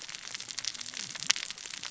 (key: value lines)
label: biophony, cascading saw
recorder: SoundTrap 600 or HydroMoth